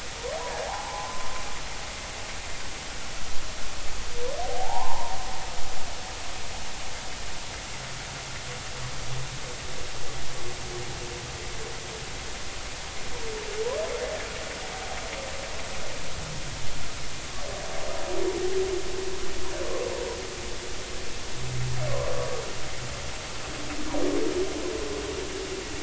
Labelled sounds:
0.4	1.3	humpback whale, 0.80 to 1.1 kHz
4.4	5.2	humpback whale, 0.80 to 1.1 kHz
21.9	22.3	humpback whale, 0.96 to 1.2 kHz

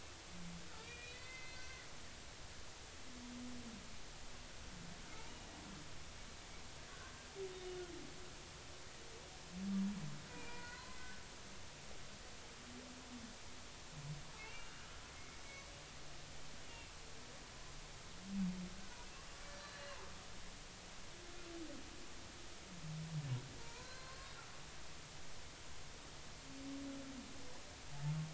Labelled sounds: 0.8	1.9	humpback whale, 1.7 to 4.7 kHz
5.1	5.5	humpback whale, 0.83 to 3.0 kHz
10.3	11.0	humpback whale, 0.93 to 2.5 kHz
14.4	14.7	humpback whale, 2.1 to 2.9 kHz
15.2	15.7	humpback whale, 2.1 to 6.2 kHz
16.7	16.9	humpback whale, 2.6 to 2.8 kHz
19.5	20.0	humpback whale, 1.7 to 4.7 kHz
23.6	24.3	humpback whale, 0.90 to 4.3 kHz

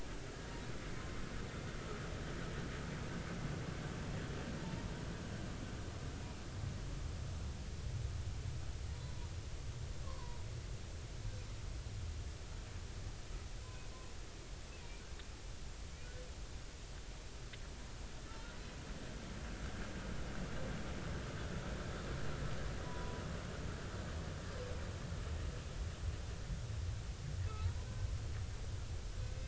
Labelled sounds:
10.0	10.4	humpback whale, 0.90 to 1.2 kHz
22.8	23.2	humpback whale, 0.93 to 1.1 kHz
27.5	27.9	humpback whale, 0.83 to 1.1 kHz

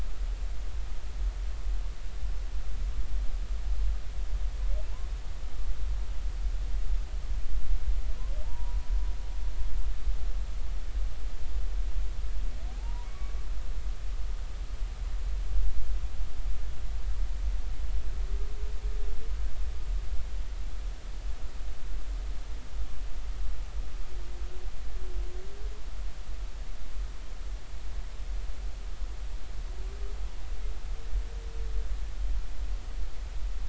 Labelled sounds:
8.4	8.8	humpback whale, 0.86 to 1.0 kHz
12.7	13.4	humpback whale, 0.80 to 2.3 kHz

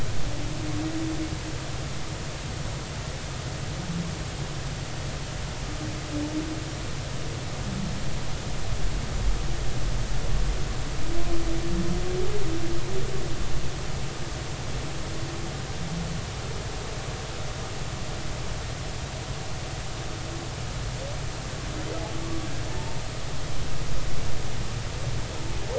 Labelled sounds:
22.7	23.0	humpback whale, 0.86 to 0.99 kHz

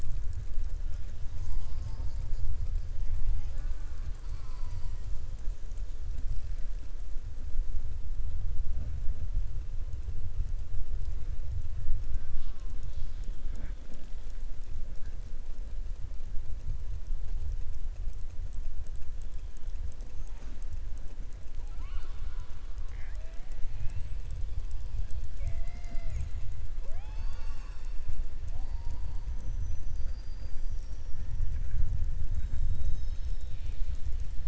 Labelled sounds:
21.5	22.5	killer whale, southern resident, 0.40 to 4.7 kHz
23.7	24.1	killer whale, southern resident, 1.7 to 3.0 kHz
26.7	28.0	killer whale, southern resident, 0.55 to 8.0 kHz

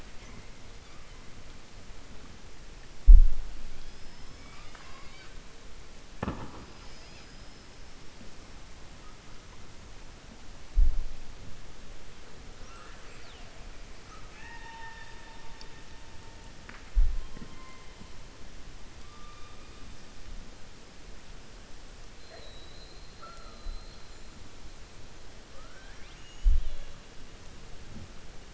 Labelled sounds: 3.8	5.3	killer whale, 1.0 to 5.3 kHz
12.6	13.5	killer whale, 0.53 to 4.7 kHz
14.0	15.4	killer whale, 0.86 to 4.4 kHz
25.5	26.9	killer whale, 0.55 to 4.0 kHz

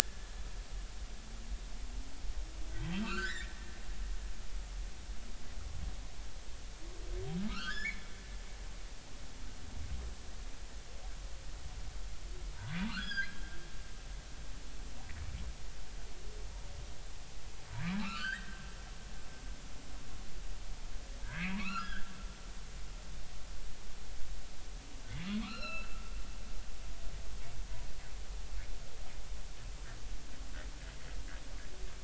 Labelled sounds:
2.7	3.5	humpback whale, 1.1 to 4.5 kHz
7.5	8.0	humpback whale, 1.2 to 7.1 kHz
12.6	13.5	humpback whale, 0.90 to 5.1 kHz
18.0	18.7	humpback whale, 1.1 to 4.8 kHz
21.2	22.1	humpback whale, 0.90 to 2.9 kHz
25.4	26.0	humpback whale, 1.1 to 4.4 kHz

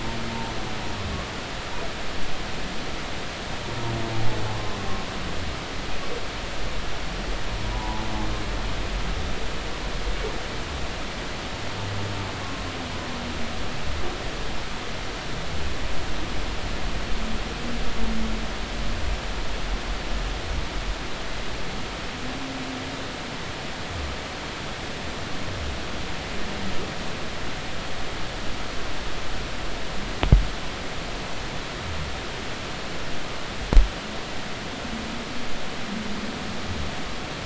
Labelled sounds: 4.5	4.8	humpback whale, 0.96 to 1.1 kHz
7.7	8.1	humpback whale, 0.83 to 1.0 kHz

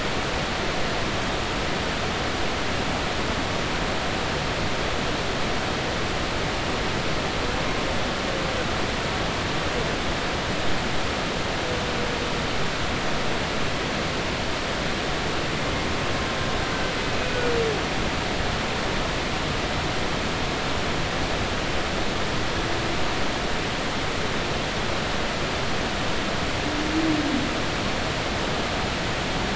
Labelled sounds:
17.1	17.4	humpback whale, 2.4 to 2.6 kHz

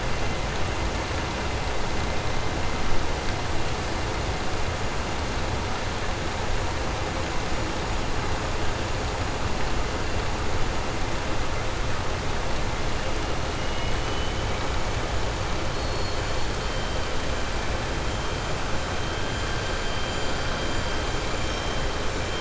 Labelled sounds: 13.5	14.5	killer whale, southern resident, 2.1 to 3.8 kHz

